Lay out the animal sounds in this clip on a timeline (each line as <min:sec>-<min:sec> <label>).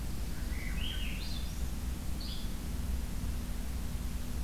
0:00.3-0:01.8 Swainson's Thrush (Catharus ustulatus)
0:02.2-0:02.6 Yellow-bellied Flycatcher (Empidonax flaviventris)